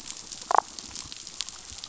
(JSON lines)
{"label": "biophony, damselfish", "recorder": "SoundTrap 500"}